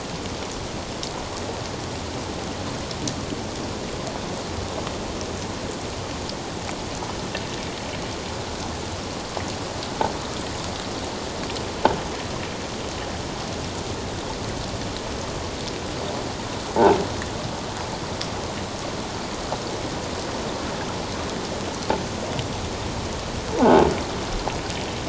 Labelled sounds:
23.6	23.8	croaking sound likely from a nearby submerged object, 0.78 to 1.1 kHz

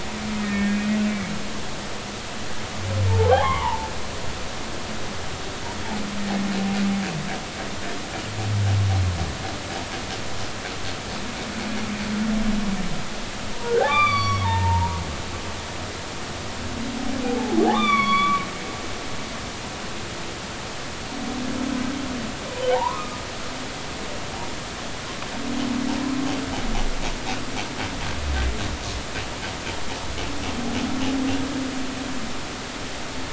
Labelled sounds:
0.4	0.8	humpback whale, 1.8 to 2.3 kHz
3.1	3.9	humpback whale, 0.80 to 3.4 kHz
13.6	15.0	humpback whale, 0.80 to 5.9 kHz
17.2	18.4	humpback whale, 0.80 to 6.0 kHz
22.7	23.2	humpback whale, 0.80 to 1.3 kHz

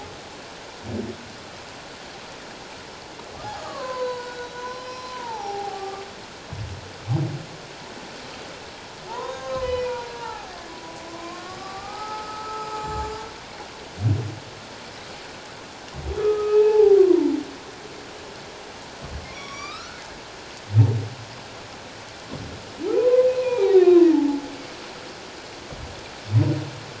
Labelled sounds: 3.6	6.0	humpback whale, 0.78 to 5.6 kHz
9.1	12.8	humpback whale, 0.78 to 6.7 kHz
16.2	17.3	humpback whale, 0.78 to 2.7 kHz
19.3	20.0	humpback whale, 1.1 to 5.9 kHz
22.9	24.4	humpback whale, 0.78 to 4.0 kHz

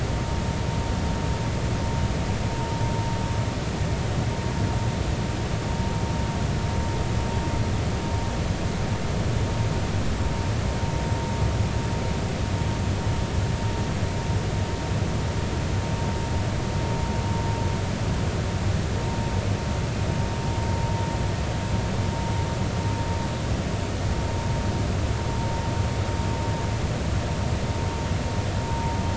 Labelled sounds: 28.7	29.0	vessel noise, 0.90 to 0.96 kHz

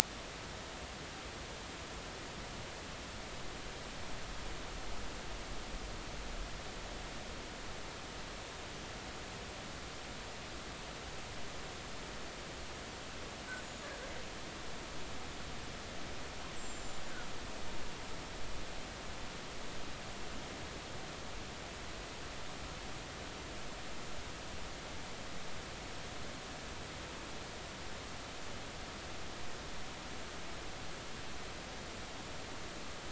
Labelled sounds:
16.5	17.0	killer whale, northern resident, 7.1 to 7.8 kHz

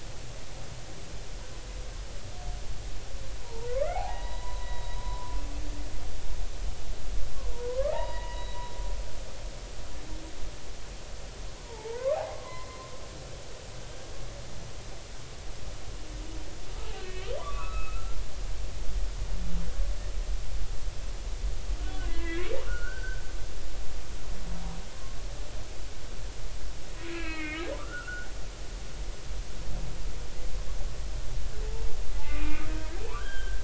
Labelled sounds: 3.4	5.4	humpback whale, 0.80 to 4.0 kHz
7.7	8.5	humpback whale, 0.80 to 3.9 kHz
11.7	12.7	humpback whale, 0.83 to 1.3 kHz
16.8	18.2	humpback whale, 0.93 to 2.9 kHz
21.8	23.2	humpback whale, 1.3 to 3.1 kHz
27.1	28.3	humpback whale, 1.1 to 2.9 kHz
32.3	33.6	humpback whale, 0.96 to 3.3 kHz

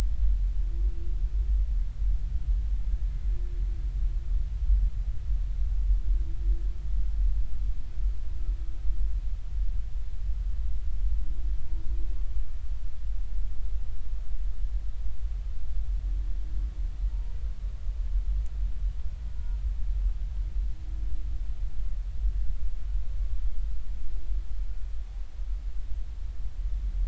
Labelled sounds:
17.1	17.4	humpback whale, 0.90 to 1.0 kHz
19.3	19.6	humpback whale, 1.4 to 1.5 kHz

